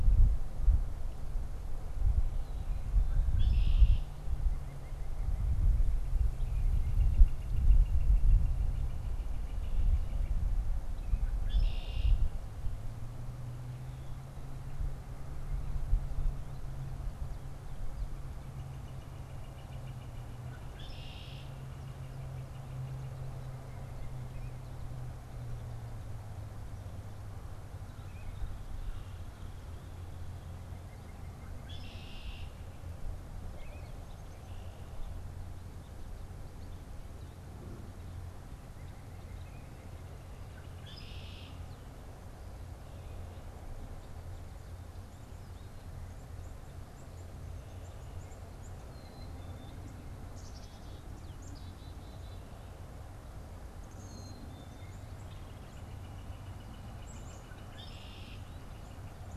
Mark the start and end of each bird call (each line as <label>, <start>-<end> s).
Red-winged Blackbird (Agelaius phoeniceus), 2.3-4.3 s
White-breasted Nuthatch (Sitta carolinensis), 4.5-6.2 s
Northern Flicker (Colaptes auratus), 6.4-10.4 s
Red-winged Blackbird (Agelaius phoeniceus), 11.0-12.4 s
Northern Flicker (Colaptes auratus), 18.3-23.4 s
Red-winged Blackbird (Agelaius phoeniceus), 20.1-21.7 s
unidentified bird, 27.6-28.8 s
White-breasted Nuthatch (Sitta carolinensis), 30.6-32.4 s
Red-winged Blackbird (Agelaius phoeniceus), 31.4-33.0 s
unidentified bird, 33.3-34.3 s
White-breasted Nuthatch (Sitta carolinensis), 38.7-40.4 s
Red-winged Blackbird (Agelaius phoeniceus), 40.5-41.8 s
Black-capped Chickadee (Poecile atricapillus), 46.5-52.9 s
Black-capped Chickadee (Poecile atricapillus), 53.5-55.2 s
Northern Flicker (Colaptes auratus), 55.3-59.4 s
Black-capped Chickadee (Poecile atricapillus), 56.9-57.6 s
Red-winged Blackbird (Agelaius phoeniceus), 57.6-58.7 s